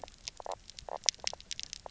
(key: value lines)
label: biophony, knock croak
recorder: SoundTrap 300